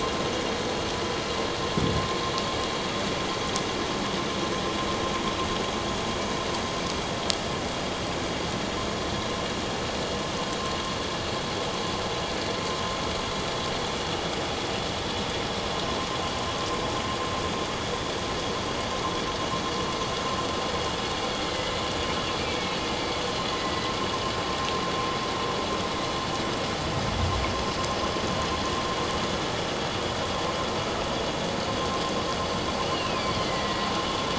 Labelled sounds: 21.4	23.9	killer whale, northern resident, A clan, AA subclan, call N04, 1.9 to 2.7 kHz
32.9	33.9	killer whale, northern resident, A clan, AA subclan, call N04, 1.9 to 3.0 kHz

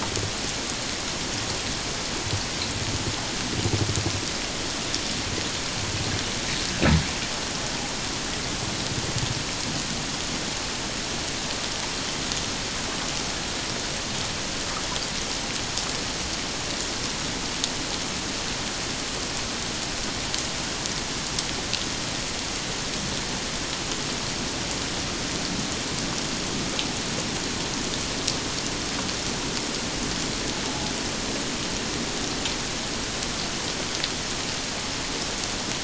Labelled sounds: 30.6	30.9	invertebrate grinding on or near the hydrophone, 0.78 to 0.94 kHz

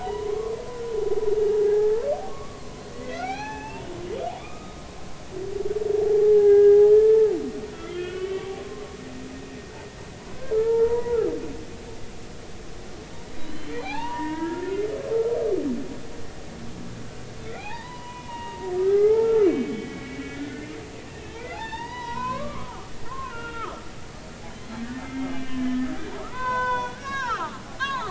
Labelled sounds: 0.3	0.5	humpback whale, 1.0 to 1.2 kHz
1.6	4.8	humpback whale, 0.80 to 6.2 kHz
6.0	7.3	humpback whale, 0.80 to 1.8 kHz
7.7	8.8	humpback whale, 0.93 to 3.4 kHz
10.5	11.2	humpback whale, 0.86 to 2.0 kHz
13.3	14.6	humpback whale, 0.80 to 6.3 kHz
17.5	20.8	humpback whale, 0.80 to 3.1 kHz
21.1	28.0	humpback whale, 0.80 to 6.0 kHz

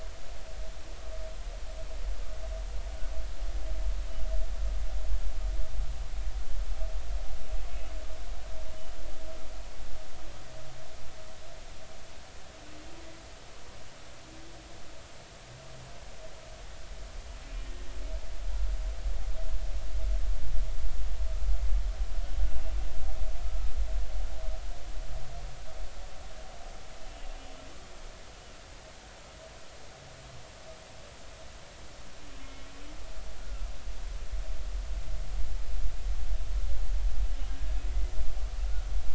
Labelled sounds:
23.4	23.7	humpback whale, 1.2 to 1.3 kHz
32.4	33.7	humpback whale, 1.2 to 2.2 kHz
37.5	37.8	humpback whale, 1.6 to 1.7 kHz

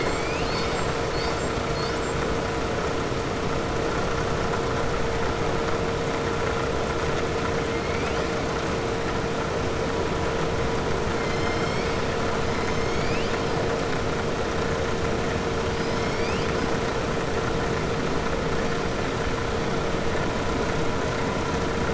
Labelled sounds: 7.7	8.2	killer whale, southern resident, 2.1 to 3.7 kHz

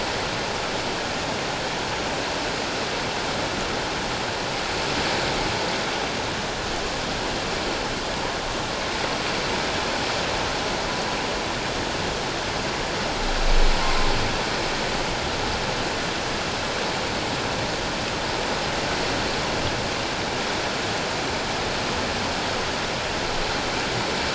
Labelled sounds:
13.8	14.1	humpback whale, 0.88 to 1.1 kHz

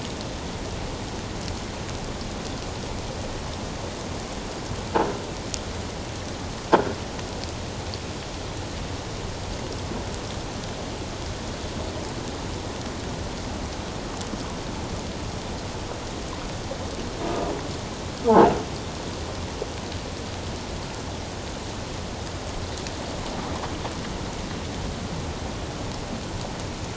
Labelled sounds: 6.7	7.0	croaking sound likely from a nearby submerged object, 1.3 to 1.7 kHz
18.3	18.5	croaking sound likely from a nearby submerged object, 0.78 to 1.1 kHz

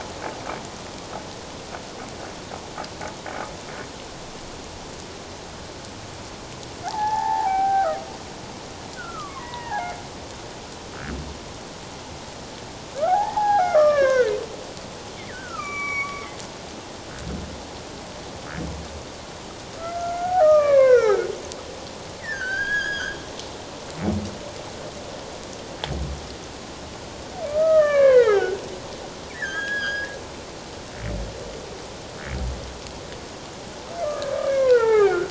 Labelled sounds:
6.8	8.0	humpback whale, 0.78 to 1.9 kHz
8.9	9.9	humpback whale, 0.78 to 2.1 kHz
13.0	14.3	humpback whale, 0.78 to 6.0 kHz
15.3	16.4	humpback whale, 1.1 to 5.9 kHz
19.8	21.3	humpback whale, 0.94 to 2.8 kHz
22.2	23.2	humpback whale, 1.3 to 6.8 kHz
27.5	28.6	humpback whale, 0.84 to 3.2 kHz
29.3	30.1	humpback whale, 1.2 to 5.1 kHz
34.0	35.2	humpback whale, 0.78 to 2.6 kHz

